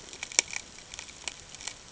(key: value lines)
label: ambient
recorder: HydroMoth